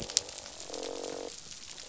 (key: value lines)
label: biophony, croak
recorder: SoundTrap 500